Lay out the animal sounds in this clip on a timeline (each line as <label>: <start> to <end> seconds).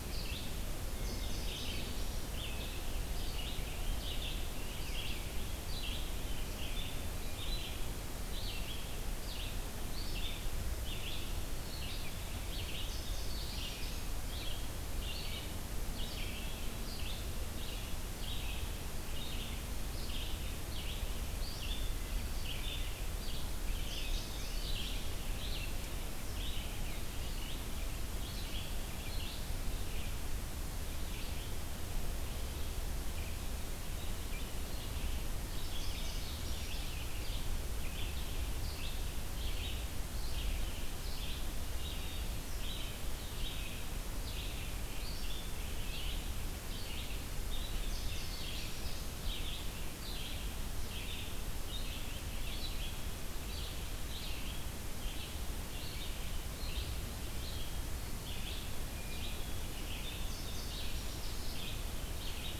Red-eyed Vireo (Vireo olivaceus): 0.0 to 62.6 seconds
Indigo Bunting (Passerina cyanea): 0.8 to 2.1 seconds
Rose-breasted Grosbeak (Pheucticus ludovicianus): 3.5 to 5.2 seconds
Indigo Bunting (Passerina cyanea): 12.7 to 14.1 seconds
Indigo Bunting (Passerina cyanea): 23.7 to 24.9 seconds
Indigo Bunting (Passerina cyanea): 35.2 to 36.8 seconds
Indigo Bunting (Passerina cyanea): 47.6 to 49.2 seconds
Indigo Bunting (Passerina cyanea): 59.9 to 61.3 seconds